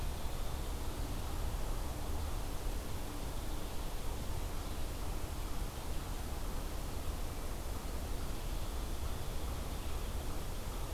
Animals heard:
forest ambience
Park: Marsh-Billings-Rockefeller National Historical Park